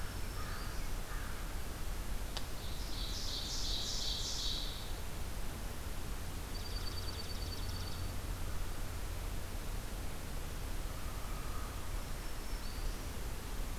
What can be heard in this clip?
Black-throated Green Warbler, American Crow, Ovenbird, Dark-eyed Junco